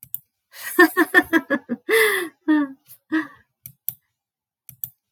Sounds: Laughter